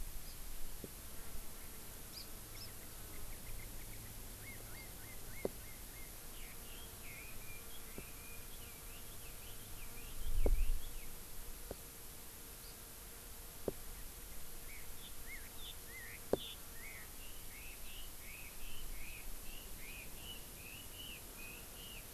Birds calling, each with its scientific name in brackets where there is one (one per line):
Hawaii Amakihi (Chlorodrepanis virens)
Chinese Hwamei (Garrulax canorus)